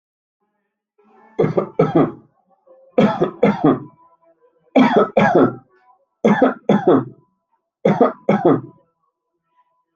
{"expert_labels": [{"quality": "ok", "cough_type": "dry", "dyspnea": false, "wheezing": false, "stridor": false, "choking": false, "congestion": false, "nothing": false, "diagnosis": "COVID-19", "severity": "mild"}], "age": 35, "gender": "male", "respiratory_condition": false, "fever_muscle_pain": false, "status": "healthy"}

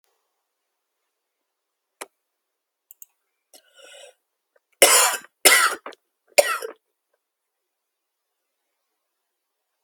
{"expert_labels": [{"quality": "ok", "cough_type": "dry", "dyspnea": false, "wheezing": false, "stridor": false, "choking": false, "congestion": false, "nothing": true, "diagnosis": "COVID-19", "severity": "mild"}, {"quality": "good", "cough_type": "dry", "dyspnea": false, "wheezing": false, "stridor": false, "choking": false, "congestion": false, "nothing": true, "diagnosis": "obstructive lung disease", "severity": "mild"}, {"quality": "good", "cough_type": "wet", "dyspnea": false, "wheezing": false, "stridor": false, "choking": false, "congestion": false, "nothing": true, "diagnosis": "lower respiratory tract infection", "severity": "mild"}, {"quality": "good", "cough_type": "dry", "dyspnea": false, "wheezing": false, "stridor": false, "choking": false, "congestion": false, "nothing": true, "diagnosis": "upper respiratory tract infection", "severity": "mild"}], "age": 29, "gender": "male", "respiratory_condition": false, "fever_muscle_pain": false, "status": "symptomatic"}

